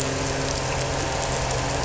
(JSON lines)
{"label": "anthrophony, boat engine", "recorder": "SoundTrap 300"}